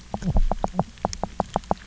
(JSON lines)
{"label": "biophony, knock croak", "recorder": "SoundTrap 300"}